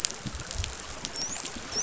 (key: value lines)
label: biophony, dolphin
recorder: SoundTrap 500